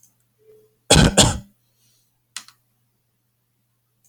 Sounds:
Cough